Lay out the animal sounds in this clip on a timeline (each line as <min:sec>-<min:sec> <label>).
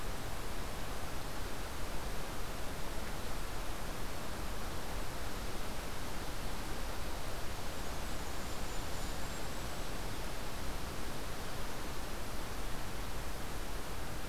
0:07.3-0:08.4 Blackburnian Warbler (Setophaga fusca)
0:07.8-0:10.2 Golden-crowned Kinglet (Regulus satrapa)